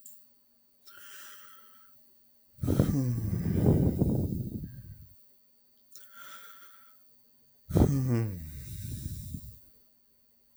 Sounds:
Sigh